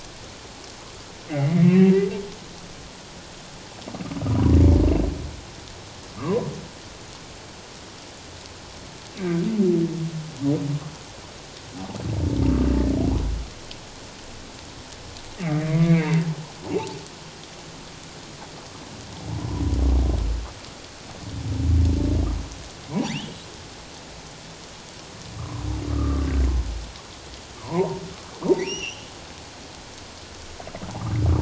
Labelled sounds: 1.3	1.9	humpback whale, 1.9 to 2.9 kHz
6.2	6.5	humpback whale, 0.94 to 1.3 kHz
12.6	12.9	humpback whale, 1.7 to 2.0 kHz
15.6	16.2	humpback whale, 1.9 to 2.5 kHz
23.1	23.4	humpback whale, 1.6 to 3.8 kHz
25.4	26.3	humpback whale, 0.97 to 1.4 kHz
27.6	29.1	humpback whale, 0.78 to 6.1 kHz

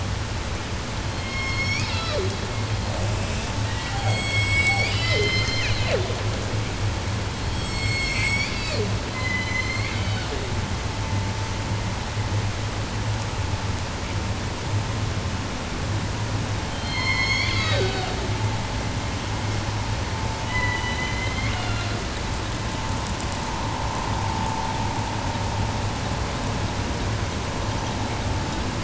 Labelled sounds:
0.9	2.4	killer whale, southern resident, J pod, call S01, 0.10 to 8.0 kHz
2.8	6.3	killer whale, southern resident, J pod, call S01, 0.10 to 8.0 kHz
7.3	10.6	killer whale, southern resident, J pod, call S01, 0.10 to 8.0 kHz
16.7	18.2	killer whale, southern resident, J pod, call S01, 0.10 to 8.0 kHz
20.3	22.2	killer whale, southern resident, J pod, call S01, 0.10 to 7.5 kHz

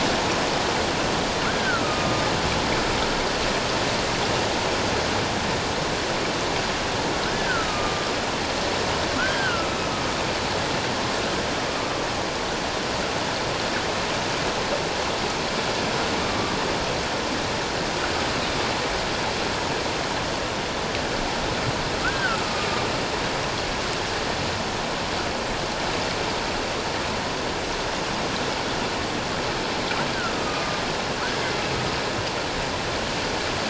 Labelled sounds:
1.5	2.3	killer whale, northern resident, A clan, AA subclan, A01 pod, call N04, 1.2 to 1.7 kHz
7.2	8.1	killer whale, northern resident, A clan, AA subclan, A01 pod, 1.2 to 1.8 kHz
9.2	9.8	killer whale, northern resident, A clan, AA subclan, A01 pod, 1.2 to 1.7 kHz
11.8	12.1	killer whale, northern resident, A clan, AA subclan, A01 pod, 1.1 to 1.2 kHz
16.2	16.6	killer whale, northern resident, A clan, AA subclan, A01 pod, 1.1 to 1.3 kHz
22.0	22.8	killer whale, northern resident, A clan, AA subclan, A01 pod, 1.2 to 1.7 kHz
30.4	30.8	killer whale, northern resident, A clan, AA subclan, A01 pod, 1.2 to 1.3 kHz

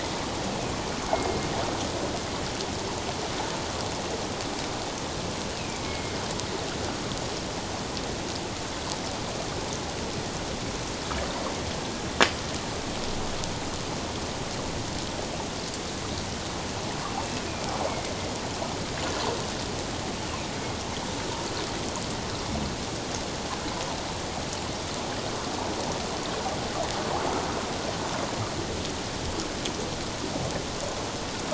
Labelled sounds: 1.1	1.5	killer whale, northern resident, A clan, AA subclan, 2.1 to 2.2 kHz
5.8	6.2	killer whale, northern resident, A clan, AA subclan, 2.1 to 2.2 kHz
17.5	17.7	killer whale, northern resident, A clan, AA subclan, 2.3 to 2.5 kHz

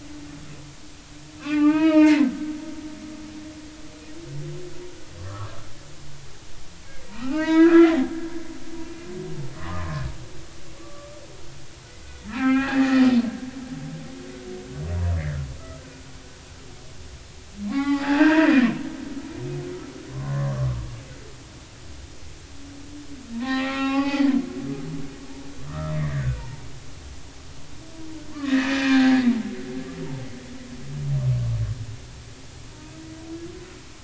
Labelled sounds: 1.4	2.3	humpback whale, 0.83 to 5.4 kHz
5.2	5.5	humpback whale, 0.99 to 1.4 kHz
7.1	8.1	humpback whale, 0.80 to 4.9 kHz
8.8	9.1	humpback whale, 2.3 to 2.5 kHz
9.5	11.1	humpback whale, 0.99 to 1.3 kHz
12.3	13.1	humpback whale, 0.80 to 3.1 kHz
15.6	15.8	humpback whale, 1.2 to 1.4 kHz
17.6	19.1	humpback whale, 0.80 to 4.9 kHz
20.1	20.8	humpback whale, 0.96 to 1.2 kHz
23.3	24.3	humpback whale, 0.80 to 4.7 kHz
25.7	26.6	humpback whale, 0.86 to 2.0 kHz
28.3	29.1	humpback whale, 1.5 to 2.7 kHz

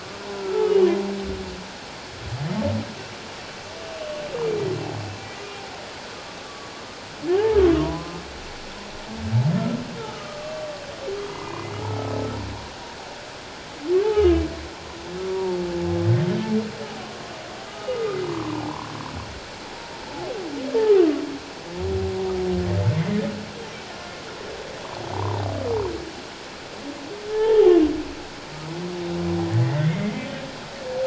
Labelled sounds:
0.3	0.8	humpback whale, 1.2 to 1.4 kHz
7.3	8.2	humpback whale, 0.78 to 1.8 kHz
10.0	10.7	humpback whale, 1.1 to 1.4 kHz
11.7	12.2	humpback whale, 1.2 to 1.3 kHz
14.0	14.4	humpback whale, 1.2 to 3.0 kHz
15.3	15.6	humpback whale, 0.81 to 1.0 kHz
17.7	18.9	humpback whale, 0.78 to 1.4 kHz
25.1	25.5	humpback whale, 0.78 to 1.2 kHz
27.3	27.7	humpback whale, 0.78 to 1.8 kHz
29.5	30.3	humpback whale, 1.7 to 2.2 kHz

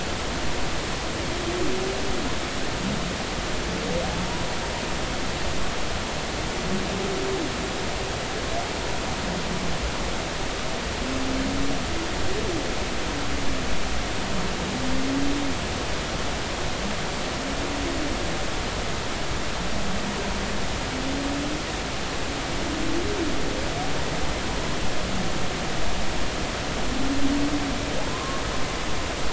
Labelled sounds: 28.1	28.4	humpback whale, 0.99 to 1.1 kHz

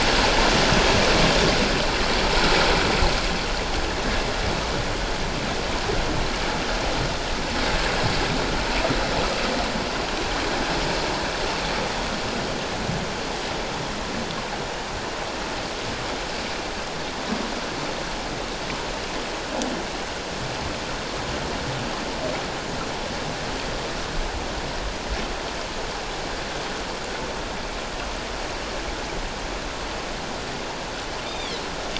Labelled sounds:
31.3	31.6	Pacific white-sided dolphin, 3.1 to 3.7 kHz

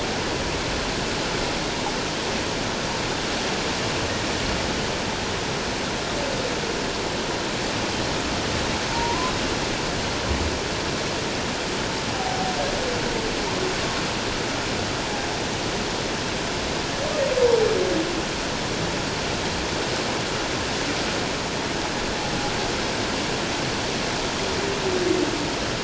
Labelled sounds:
8.9	9.3	humpback whale, 0.88 to 1.1 kHz
12.1	12.5	humpback whale, 0.78 to 0.81 kHz

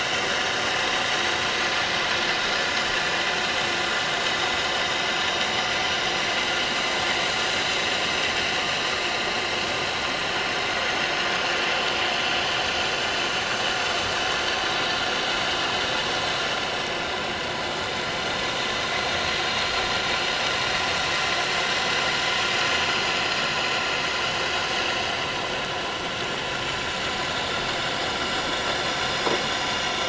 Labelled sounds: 22.5	22.8	vessel noise, 6.7 to 6.8 kHz
28.4	28.7	vessel noise, 5.6 to 5.7 kHz

